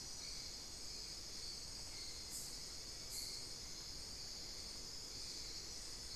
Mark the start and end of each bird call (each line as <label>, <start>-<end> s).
unidentified bird, 1.7-3.5 s